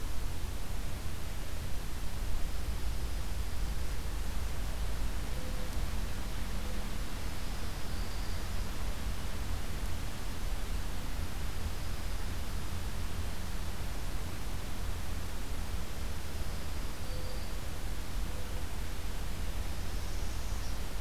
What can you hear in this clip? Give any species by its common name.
Dark-eyed Junco, Mourning Dove, Black-throated Green Warbler, Northern Parula